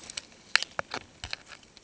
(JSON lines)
{"label": "ambient", "recorder": "HydroMoth"}